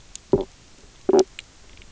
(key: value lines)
label: biophony, knock croak
recorder: SoundTrap 300